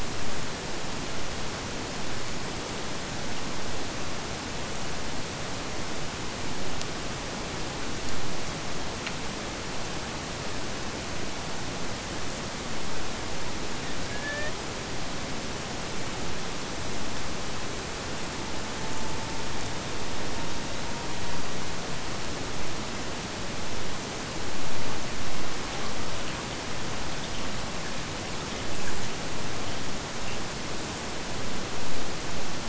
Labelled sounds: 14.0	14.7	killer whale, Bigg's (transient), AT1 transient, 0.42 to 4.9 kHz
18.2	21.9	killer whale, Bigg's (transient), AT1 transient, 0.80 to 5.1 kHz

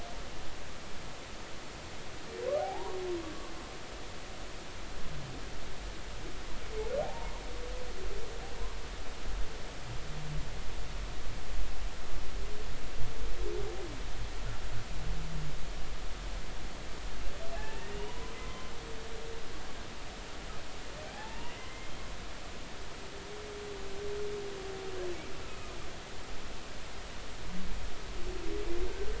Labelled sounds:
2.6	3.0	humpback whale, 0.80 to 1.2 kHz
7.0	7.4	humpback whale, 0.80 to 0.99 kHz
17.6	18.7	humpback whale, 0.90 to 3.0 kHz
21.1	21.9	humpback whale, 0.80 to 2.2 kHz
25.4	25.8	humpback whale, 1.2 to 1.4 kHz

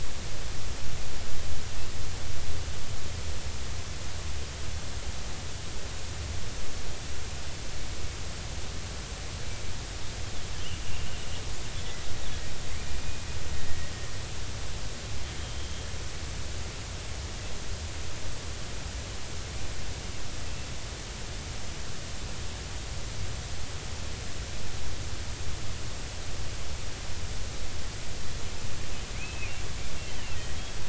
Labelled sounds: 10.9	11.2	killer whale, Bigg's (transient), 2.7 to 3.0 kHz
13.0	13.3	killer whale, Bigg's (transient), 2.4 to 2.5 kHz
29.1	29.5	killer whale, Bigg's (transient), 2.0 to 2.7 kHz

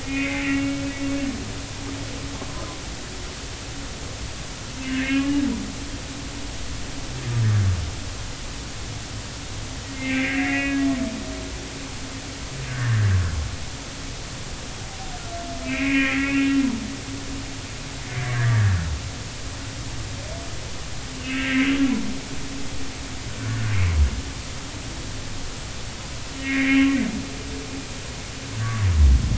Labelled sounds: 0.0	0.8	humpback whale, 1.9 to 2.8 kHz
4.9	5.4	humpback whale, 1.5 to 2.9 kHz
9.9	10.8	humpback whale, 1.5 to 2.8 kHz
12.7	13.0	humpback whale, 1.5 to 1.9 kHz
15.6	16.5	humpback whale, 1.8 to 2.8 kHz
18.1	18.7	humpback whale, 1.5 to 2.2 kHz
21.1	21.6	humpback whale, 1.3 to 2.9 kHz
23.7	24.0	humpback whale, 2.0 to 2.5 kHz
26.4	26.9	humpback whale, 1.8 to 2.5 kHz
28.6	28.9	humpback whale, 1.1 to 1.2 kHz

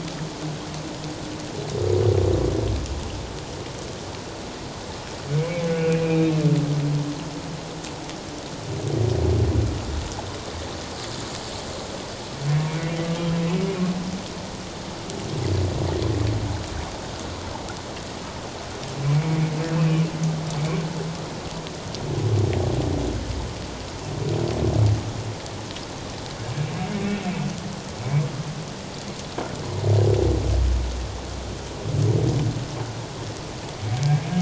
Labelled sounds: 5.7	6.3	humpback whale, 1.4 to 2.7 kHz
12.6	13.3	humpback whale, 1.1 to 2.4 kHz
19.0	19.4	humpback whale, 2.2 to 2.4 kHz
19.7	20.1	humpback whale, 2.3 to 2.7 kHz
33.8	34.2	humpback whale, 2.2 to 2.4 kHz

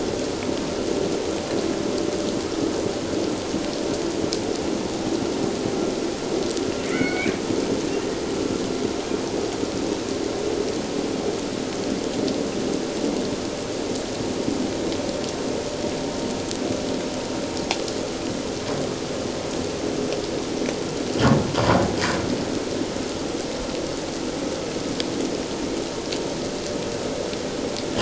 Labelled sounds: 6.8	7.3	killer whale, Bigg's (transient), 1.3 to 2.6 kHz

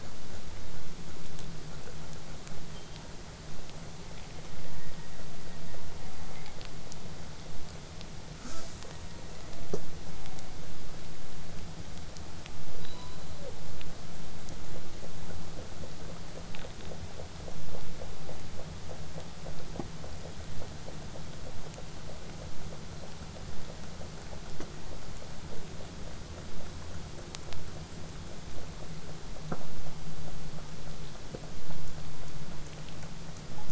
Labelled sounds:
8.4	8.9	killer whale, southern resident, J pod, call S05, 0.09 to 8.0 kHz
10.2	10.6	killer whale, southern resident, 0.58 to 1.0 kHz
19.5	24.5	vessel noise, 0 to 8.0 kHz

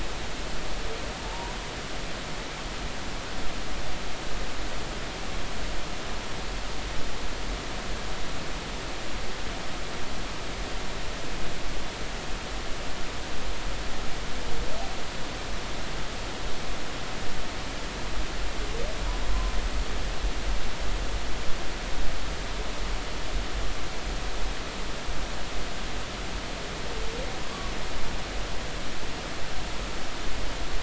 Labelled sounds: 1.2	1.5	humpback whale, 0.86 to 1.0 kHz
19.3	19.5	humpback whale, 0.99 to 1.1 kHz

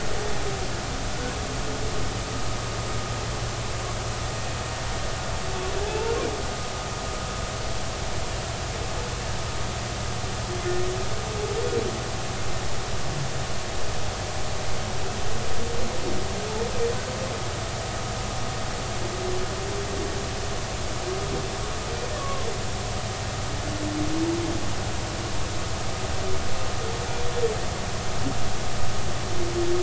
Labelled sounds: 5.9	6.2	humpback whale, 2.5 to 2.8 kHz
22.2	22.5	humpback whale, 0.99 to 1.2 kHz

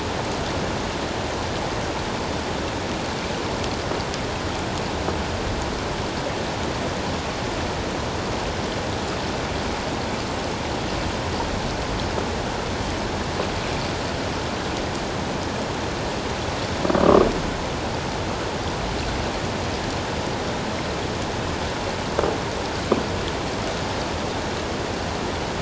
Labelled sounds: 17.0	17.3	croaking sound likely from a nearby submerged object, 1.0 to 1.3 kHz

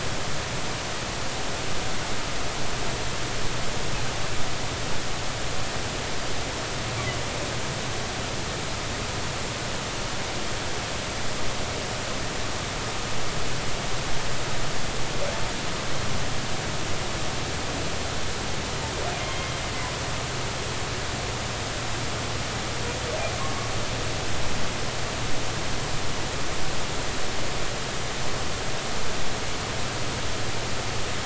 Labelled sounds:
19.2	19.5	humpback whale, 2.0 to 3.3 kHz
23.4	23.7	humpback whale, 0.99 to 1.2 kHz

